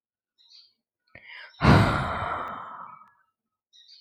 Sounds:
Sigh